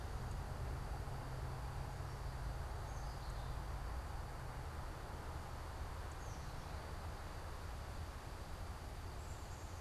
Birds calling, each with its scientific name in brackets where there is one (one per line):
Black-capped Chickadee (Poecile atricapillus)